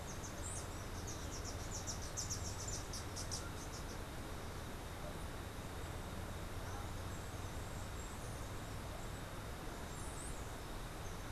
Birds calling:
unidentified bird

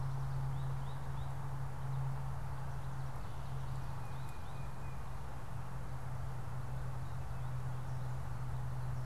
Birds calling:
Tufted Titmouse (Baeolophus bicolor)
American Goldfinch (Spinus tristis)

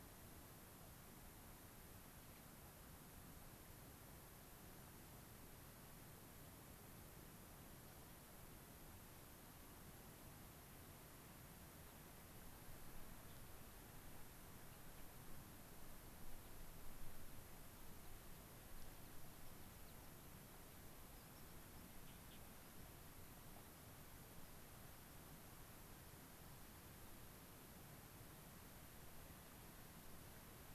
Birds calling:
Gray-crowned Rosy-Finch (Leucosticte tephrocotis)
unidentified bird

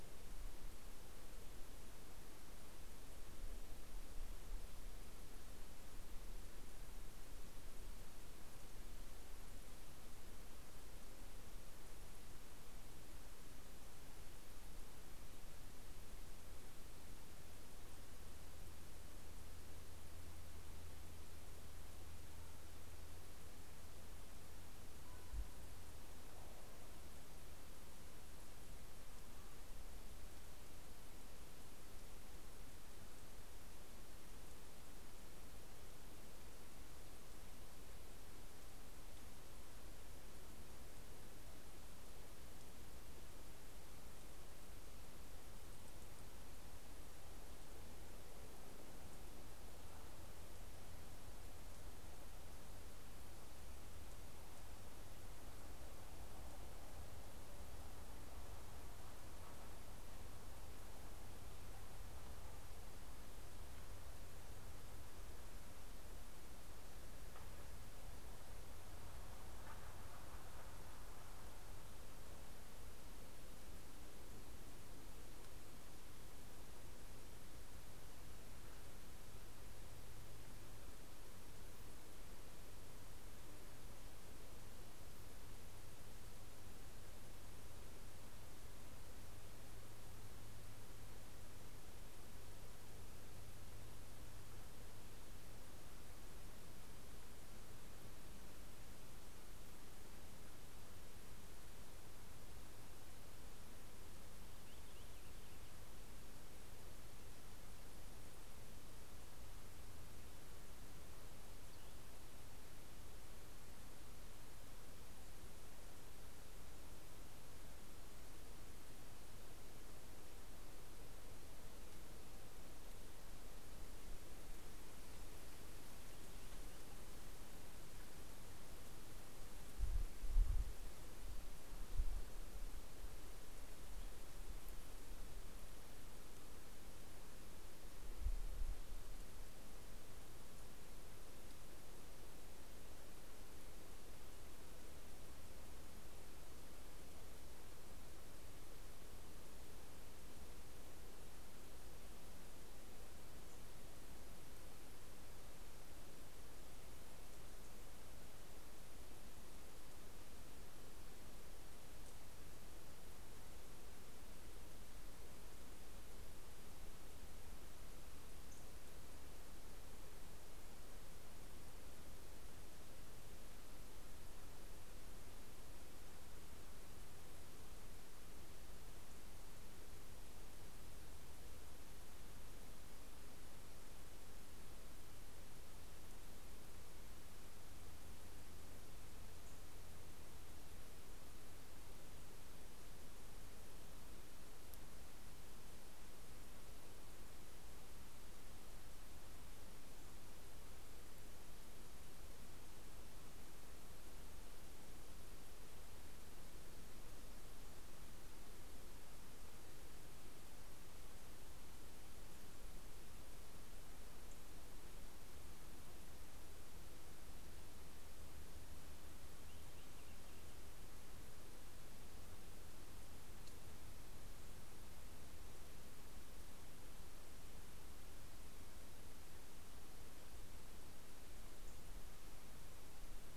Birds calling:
Purple Finch (Haemorhous purpureus)

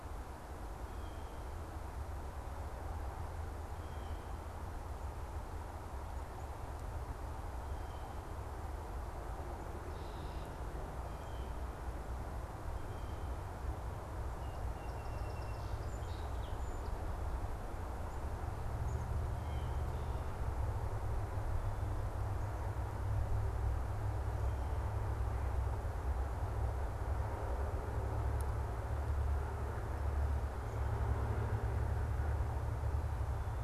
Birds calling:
Red-winged Blackbird (Agelaius phoeniceus)
Black-capped Chickadee (Poecile atricapillus)
Blue Jay (Cyanocitta cristata)
Song Sparrow (Melospiza melodia)

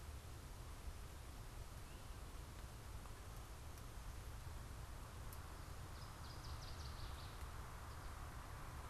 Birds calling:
Northern Waterthrush (Parkesia noveboracensis)

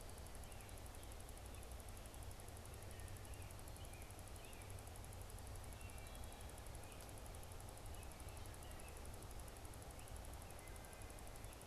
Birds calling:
Wood Thrush (Hylocichla mustelina)
American Robin (Turdus migratorius)

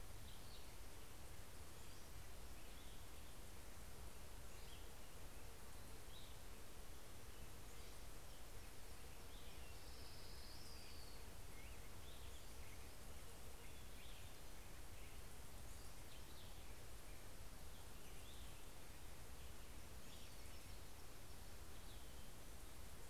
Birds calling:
Orange-crowned Warbler (Leiothlypis celata)
Cassin's Vireo (Vireo cassinii)
Western Tanager (Piranga ludoviciana)
Pacific-slope Flycatcher (Empidonax difficilis)

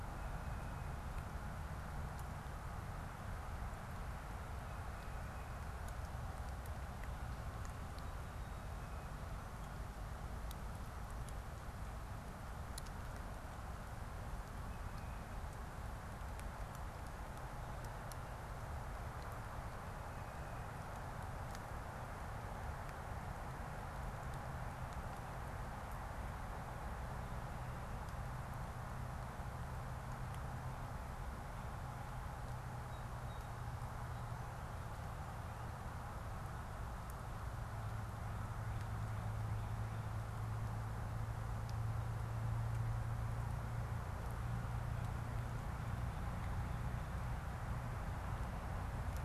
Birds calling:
Song Sparrow (Melospiza melodia)
Tufted Titmouse (Baeolophus bicolor)

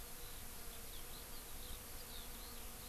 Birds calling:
Eurasian Skylark (Alauda arvensis)

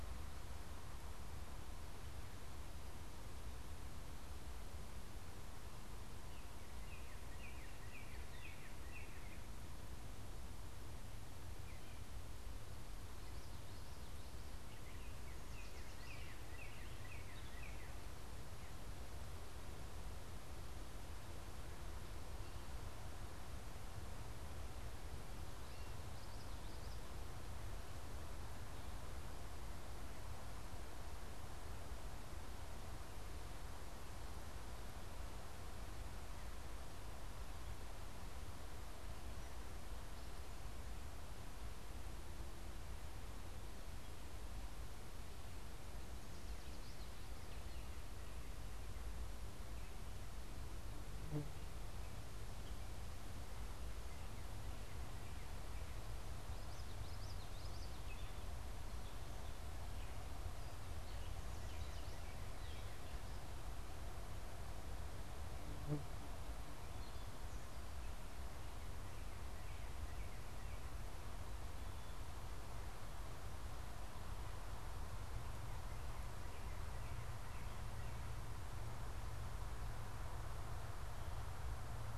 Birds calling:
Gray Catbird (Dumetella carolinensis)
Yellow Warbler (Setophaga petechia)
Northern Cardinal (Cardinalis cardinalis)
Common Yellowthroat (Geothlypis trichas)

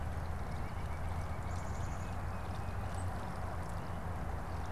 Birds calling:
Black-capped Chickadee (Poecile atricapillus)
Tufted Titmouse (Baeolophus bicolor)
White-breasted Nuthatch (Sitta carolinensis)

